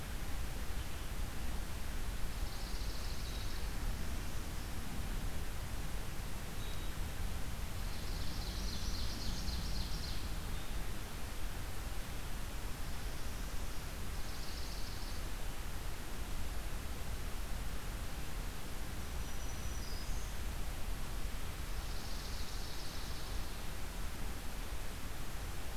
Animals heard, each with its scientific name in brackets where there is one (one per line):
Black-throated Green Warbler (Setophaga virens)
Ovenbird (Seiurus aurocapilla)
Swamp Sparrow (Melospiza georgiana)